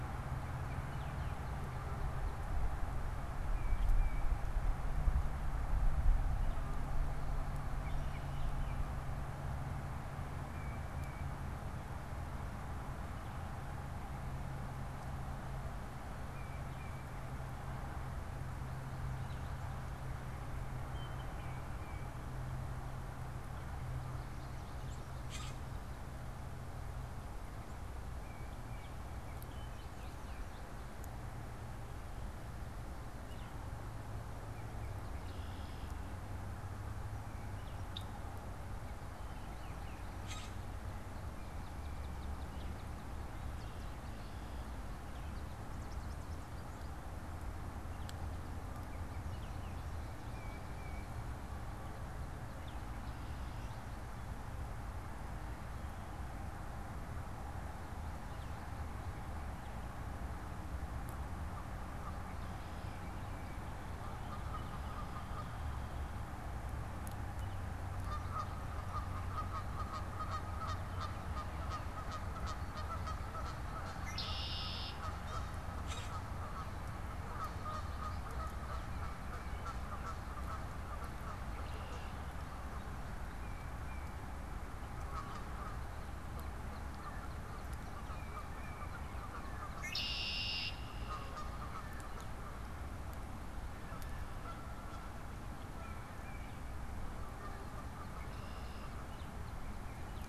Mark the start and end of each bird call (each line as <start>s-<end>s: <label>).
0.0s-1.8s: Baltimore Oriole (Icterus galbula)
3.4s-4.4s: Tufted Titmouse (Baeolophus bicolor)
7.5s-9.1s: Baltimore Oriole (Icterus galbula)
10.4s-11.4s: Tufted Titmouse (Baeolophus bicolor)
16.2s-17.2s: Tufted Titmouse (Baeolophus bicolor)
21.3s-22.2s: Tufted Titmouse (Baeolophus bicolor)
23.5s-26.5s: American Goldfinch (Spinus tristis)
25.2s-25.6s: Common Grackle (Quiscalus quiscula)
28.0s-29.0s: Tufted Titmouse (Baeolophus bicolor)
29.0s-30.9s: American Goldfinch (Spinus tristis)
33.1s-33.7s: Baltimore Oriole (Icterus galbula)
35.0s-36.1s: Red-winged Blackbird (Agelaius phoeniceus)
37.5s-37.8s: Baltimore Oriole (Icterus galbula)
37.9s-38.1s: Red-winged Blackbird (Agelaius phoeniceus)
40.1s-40.8s: Common Grackle (Quiscalus quiscula)
41.2s-47.4s: American Goldfinch (Spinus tristis)
48.5s-49.9s: Baltimore Oriole (Icterus galbula)
50.2s-51.3s: Tufted Titmouse (Baeolophus bicolor)
63.7s-100.3s: Canada Goose (Branta canadensis)
73.8s-75.1s: Red-winged Blackbird (Agelaius phoeniceus)
75.7s-76.2s: Common Grackle (Quiscalus quiscula)
78.9s-79.7s: Tufted Titmouse (Baeolophus bicolor)
83.3s-84.3s: Tufted Titmouse (Baeolophus bicolor)
85.0s-89.9s: Northern Cardinal (Cardinalis cardinalis)
88.0s-89.0s: Blue Jay (Cyanocitta cristata)
89.6s-91.2s: Red-winged Blackbird (Agelaius phoeniceus)